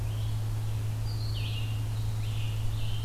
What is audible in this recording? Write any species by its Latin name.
Vireo olivaceus, Piranga olivacea